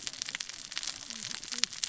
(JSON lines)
{"label": "biophony, cascading saw", "recorder": "SoundTrap 600 or HydroMoth"}